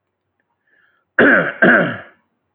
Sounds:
Cough